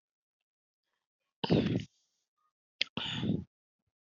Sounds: Throat clearing